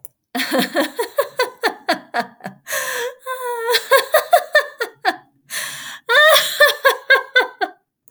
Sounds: Laughter